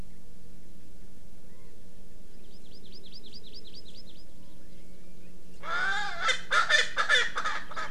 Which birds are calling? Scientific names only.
Garrulax canorus, Chlorodrepanis virens, Pternistis erckelii